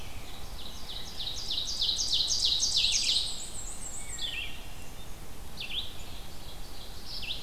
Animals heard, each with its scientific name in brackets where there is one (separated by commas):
Wood Thrush (Hylocichla mustelina), Black-and-white Warbler (Mniotilta varia), Red-eyed Vireo (Vireo olivaceus), Ovenbird (Seiurus aurocapilla)